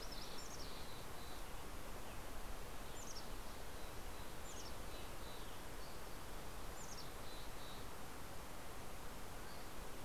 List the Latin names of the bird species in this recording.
Poecile gambeli, Oreortyx pictus, Empidonax oberholseri